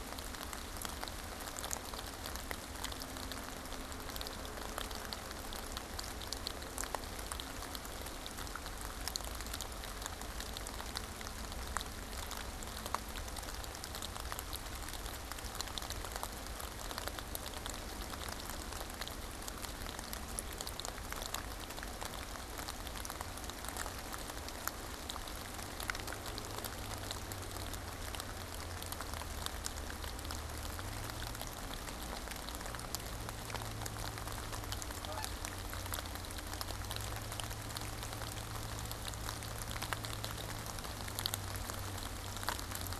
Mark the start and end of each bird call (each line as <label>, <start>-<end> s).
Canada Goose (Branta canadensis), 35.0-35.3 s